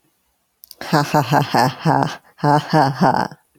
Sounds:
Laughter